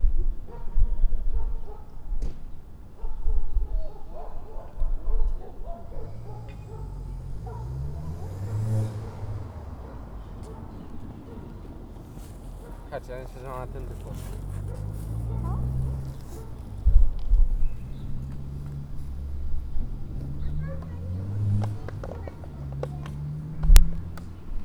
does a person speak?
yes